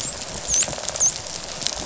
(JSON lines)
{"label": "biophony", "recorder": "SoundTrap 500"}
{"label": "biophony, dolphin", "recorder": "SoundTrap 500"}